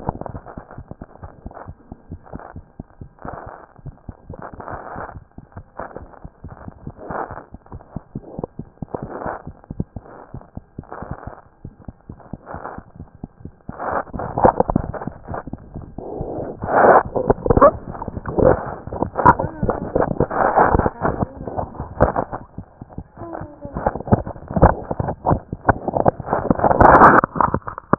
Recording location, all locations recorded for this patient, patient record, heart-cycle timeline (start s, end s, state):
mitral valve (MV)
aortic valve (AV)+mitral valve (MV)
#Age: Infant
#Sex: Female
#Height: 62.0 cm
#Weight: 7.2 kg
#Pregnancy status: False
#Murmur: Unknown
#Murmur locations: nan
#Most audible location: nan
#Systolic murmur timing: nan
#Systolic murmur shape: nan
#Systolic murmur grading: nan
#Systolic murmur pitch: nan
#Systolic murmur quality: nan
#Diastolic murmur timing: nan
#Diastolic murmur shape: nan
#Diastolic murmur grading: nan
#Diastolic murmur pitch: nan
#Diastolic murmur quality: nan
#Outcome: Abnormal
#Campaign: 2014 screening campaign
0.00	1.16	unannotated
1.16	1.24	diastole
1.24	1.32	S1
1.32	1.46	systole
1.46	1.54	S2
1.54	1.68	diastole
1.68	1.76	S1
1.76	1.90	systole
1.90	1.97	S2
1.97	2.12	diastole
2.12	2.20	S1
2.20	2.34	systole
2.34	2.42	S2
2.42	2.57	diastole
2.57	2.66	S1
2.66	2.79	systole
2.79	2.86	S2
2.86	3.02	diastole
3.02	3.10	S1
3.10	3.25	systole
3.25	3.32	S2
3.32	3.52	diastole
3.52	27.98	unannotated